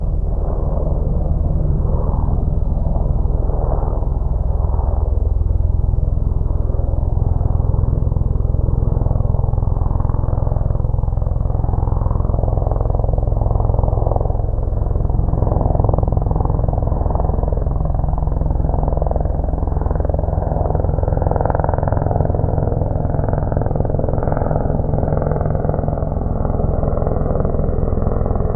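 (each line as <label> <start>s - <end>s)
A muffled sound of a helicopter flying. 0.0s - 28.6s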